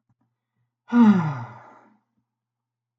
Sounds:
Sigh